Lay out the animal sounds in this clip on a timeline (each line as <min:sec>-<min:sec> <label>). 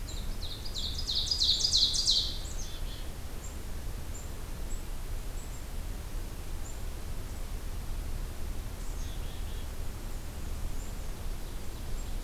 0:00.0-0:02.5 Ovenbird (Seiurus aurocapilla)
0:02.3-0:06.8 Black-capped Chickadee (Poecile atricapillus)
0:08.8-0:09.8 Black-capped Chickadee (Poecile atricapillus)
0:10.6-0:12.2 Black-capped Chickadee (Poecile atricapillus)